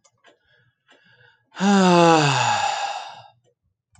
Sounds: Sigh